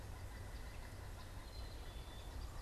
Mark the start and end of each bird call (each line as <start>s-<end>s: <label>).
0.0s-2.6s: Pileated Woodpecker (Dryocopus pileatus)
0.3s-2.6s: American Goldfinch (Spinus tristis)
1.1s-2.6s: Gray Catbird (Dumetella carolinensis)